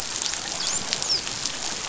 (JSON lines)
{"label": "biophony, dolphin", "recorder": "SoundTrap 500"}